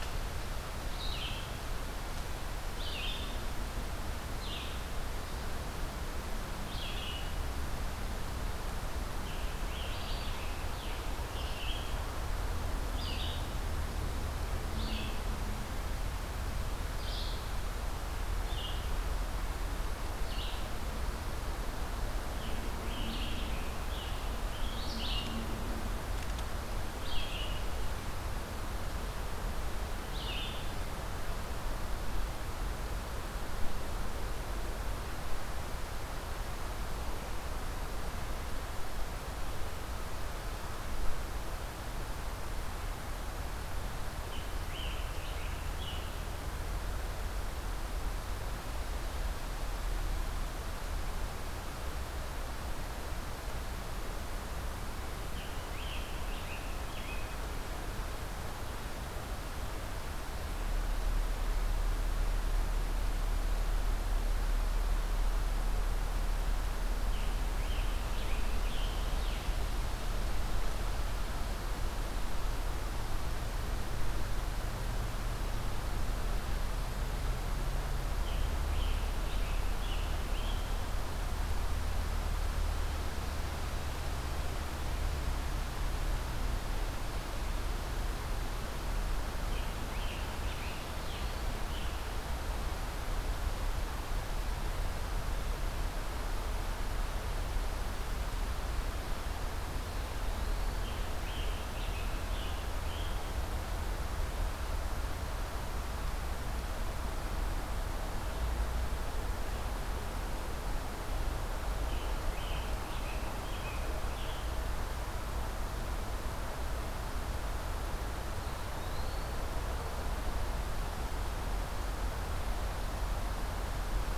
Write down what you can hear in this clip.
Red-eyed Vireo, Scarlet Tanager, Eastern Wood-Pewee